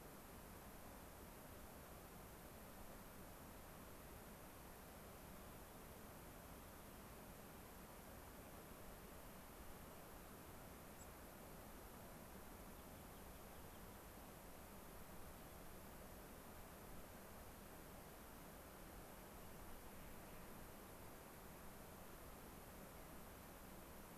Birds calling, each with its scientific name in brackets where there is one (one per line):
White-crowned Sparrow (Zonotrichia leucophrys)
Rock Wren (Salpinctes obsoletus)